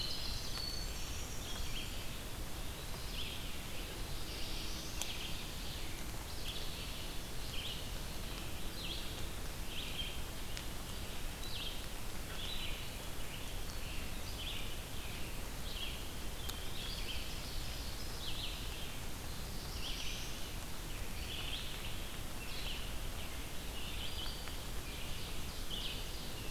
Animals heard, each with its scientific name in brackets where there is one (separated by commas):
Black-throated Blue Warbler (Setophaga caerulescens), Ovenbird (Seiurus aurocapilla), Red-eyed Vireo (Vireo olivaceus), Winter Wren (Troglodytes hiemalis)